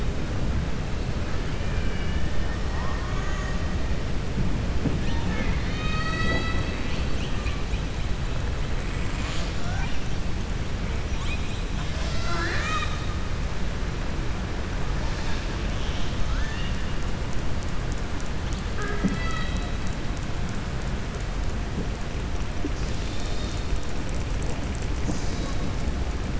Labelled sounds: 1.5	2.3	killer whale, southern resident, 1.5 to 3.0 kHz
2.6	3.6	killer whale, southern resident, 0.75 to 2.7 kHz

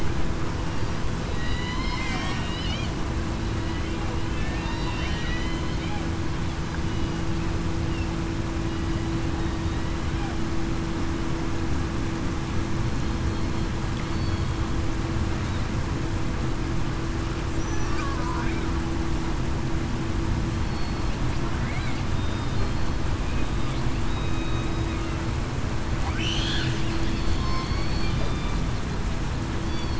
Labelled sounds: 1.3	2.7	killer whale, southern resident, 2.8 to 4.3 kHz
4.6	5.6	killer whale, southern resident, 1.8 to 3.0 kHz
6.8	7.2	killer whale, southern resident, 2.8 to 3.0 kHz
14.1	14.5	killer whale, southern resident, 4.4 to 4.5 kHz
18.0	18.4	killer whale, southern resident, 0.94 to 1.1 kHz
20.6	21.1	killer whale, southern resident, 4.2 to 4.4 kHz
22.1	22.6	killer whale, southern resident, 3.6 to 3.7 kHz
24.1	24.9	killer whale, southern resident, 3.7 to 3.8 kHz
27.1	28.2	killer whale, southern resident, 2.1 to 4.5 kHz
29.6	29.9	killer whale, southern resident, 3.3 to 3.5 kHz

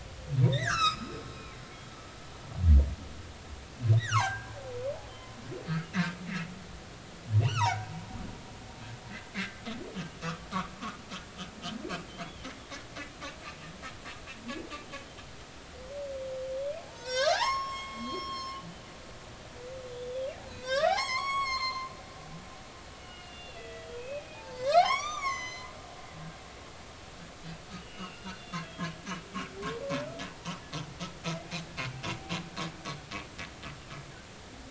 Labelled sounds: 0.5	1.3	humpback whale, 1.1 to 6.0 kHz
4.0	4.5	humpback whale, 0.80 to 2.1 kHz
7.4	7.9	humpback whale, 0.80 to 4.5 kHz
9.1	9.6	humpback whale, 1.5 to 2.4 kHz
16.8	19.1	humpback whale, 0.80 to 7.6 kHz
19.9	21.9	humpback whale, 0.80 to 7.8 kHz
22.9	25.7	humpback whale, 0.80 to 7.3 kHz
27.8	28.6	humpback whale, 1.0 to 3.6 kHz
30.3	30.6	humpback whale, 0.86 to 1.2 kHz

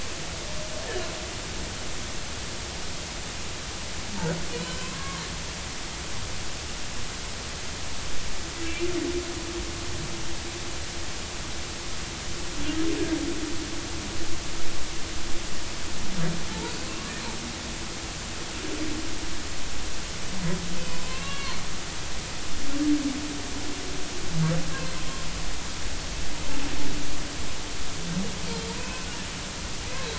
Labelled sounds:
4.5	5.2	humpback whale, 0.99 to 3.2 kHz
16.8	17.1	humpback whale, 1.0 to 1.2 kHz
20.8	21.6	humpback whale, 0.90 to 2.9 kHz
28.8	29.2	humpback whale, 1.4 to 2.6 kHz

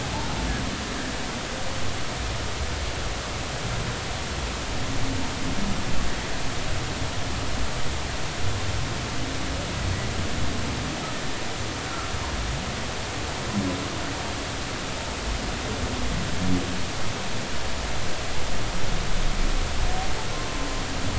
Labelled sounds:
11.8	12.1	humpback whale, 1.2 to 1.5 kHz

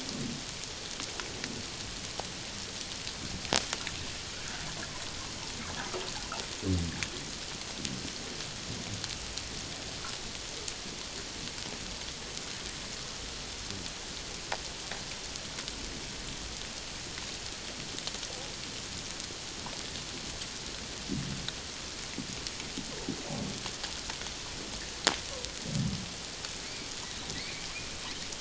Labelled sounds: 27.3	27.6	humpback whale, 1.9 to 2.5 kHz

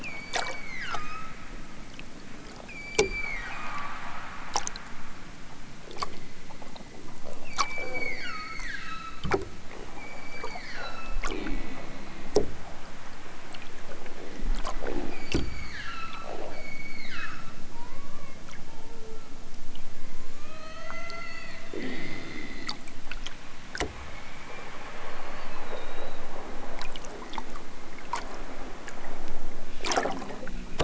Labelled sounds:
0.0	1.4	killer whale, southern Alaska resident, 0.78 to 7.3 kHz
2.6	4.0	killer whale, southern Alaska resident, 0.73 to 8.0 kHz
7.5	9.3	killer whale, southern Alaska resident, 0.87 to 8.0 kHz
9.9	11.2	killer whale, southern Alaska resident, 1.1 to 8.0 kHz
15.0	18.4	killer whale, southern Alaska resident, 0.55 to 8.0 kHz
19.9	21.7	killer whale, southern Alaska resident, 0.69 to 7.5 kHz

